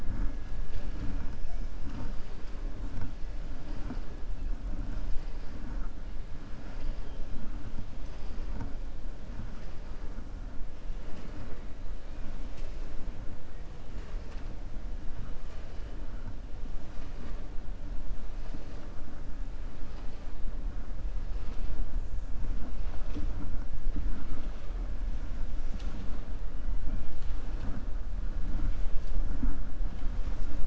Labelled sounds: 6.6	7.2	killer whale, 1.4 to 5.3 kHz

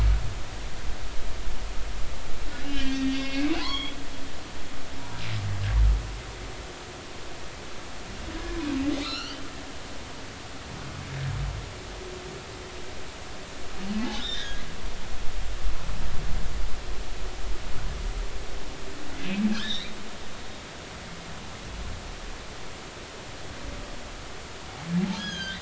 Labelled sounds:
2.6	4.0	humpback whale, 0.80 to 4.6 kHz
8.3	8.6	humpback whale, 1.6 to 1.8 kHz
9.0	9.4	humpback whale, 1.1 to 6.0 kHz
14.1	14.6	humpback whale, 1.6 to 3.9 kHz
19.5	20.0	humpback whale, 1.3 to 4.1 kHz
25.2	25.5	humpback whale, 1.5 to 6.7 kHz

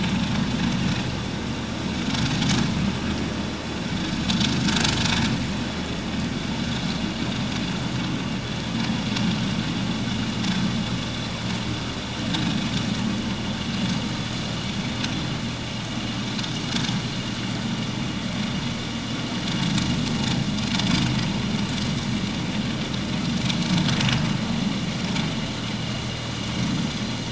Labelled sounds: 25.8	26.0	vessel noise, 2.8 to 3.0 kHz

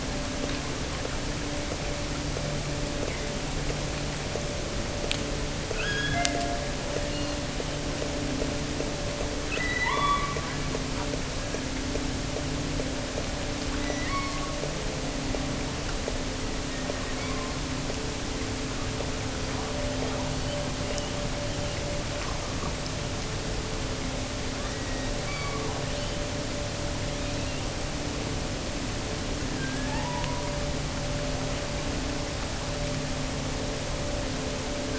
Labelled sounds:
5.7	6.7	killer whale, offshore, 0.59 to 5.3 kHz
7.1	7.9	killer whale, offshore, 2.5 to 4.5 kHz
9.5	10.8	killer whale, offshore, 0.73 to 4.2 kHz
13.7	14.7	killer whale, offshore, 0.89 to 6.0 kHz
16.5	17.7	killer whale, offshore, 0.95 to 4.9 kHz
24.5	26.3	killer whale, offshore, 0.52 to 4.8 kHz
27.1	28.0	killer whale, offshore, 2.4 to 4.5 kHz
29.5	30.6	killer whale, offshore, 0.73 to 3.7 kHz

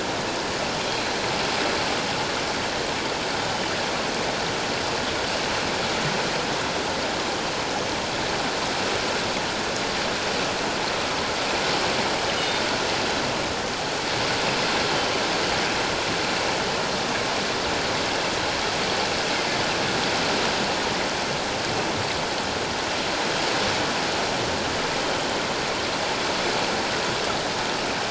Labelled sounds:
0.9	1.2	killer whale, northern resident, G clan, 4.1 to 4.2 kHz
12.4	12.6	killer whale, northern resident, G clan, 3.5 to 3.7 kHz

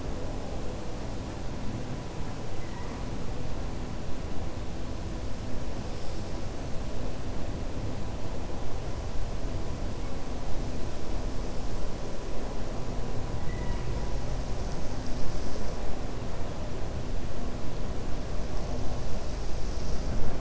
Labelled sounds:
13.4	13.9	killer whale, 0.95 to 3.0 kHz

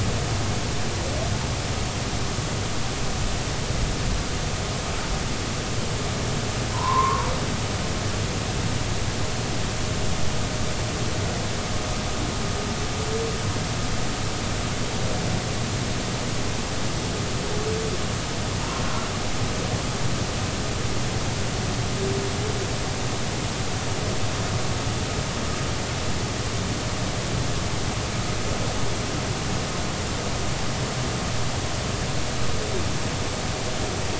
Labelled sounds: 6.7	7.3	humpback whale, 0.86 to 1.2 kHz

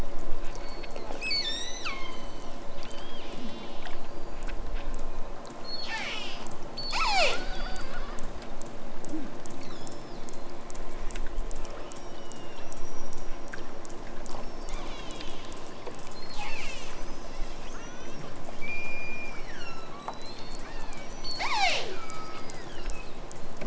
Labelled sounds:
0.4	2.3	killer whale, southern Alaska resident, 0.74 to 8.0 kHz
2.9	3.9	killer whale, southern Alaska resident, 1.8 to 6.9 kHz
5.6	7.9	killer whale, southern Alaska resident, 0.28 to 8.0 kHz
9.5	10.3	killer whale, southern Alaska resident, 1.1 to 8.0 kHz
11.8	13.8	killer whale, southern Alaska resident, 1.1 to 6.1 kHz
14.3	15.8	killer whale, southern Alaska resident, 1.5 to 7.8 kHz
16.1	17.0	killer whale, southern Alaska resident, 0.51 to 8.0 kHz
17.5	23.3	killer whale, southern Alaska resident, 0.23 to 8.0 kHz

